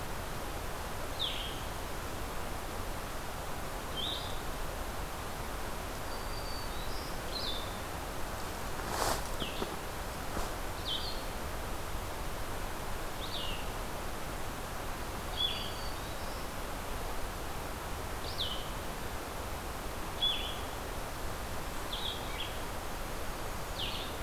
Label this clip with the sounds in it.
Blue-headed Vireo, Black-throated Green Warbler, Blackburnian Warbler